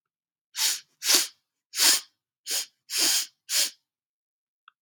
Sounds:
Sniff